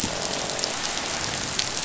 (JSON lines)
{"label": "biophony, croak", "recorder": "SoundTrap 500"}